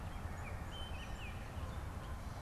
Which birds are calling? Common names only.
Baltimore Oriole, Canada Goose